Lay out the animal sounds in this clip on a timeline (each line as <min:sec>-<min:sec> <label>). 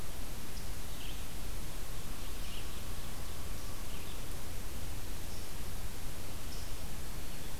0:00.8-0:07.6 Red-eyed Vireo (Vireo olivaceus)
0:05.2-0:07.6 unknown mammal